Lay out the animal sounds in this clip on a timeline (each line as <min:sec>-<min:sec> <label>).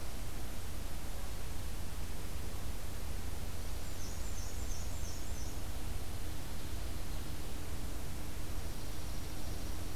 0:03.4-0:05.6 Black-and-white Warbler (Mniotilta varia)
0:05.5-0:07.5 Ovenbird (Seiurus aurocapilla)
0:08.4-0:10.0 Dark-eyed Junco (Junco hyemalis)